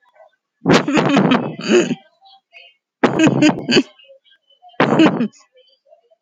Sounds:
Laughter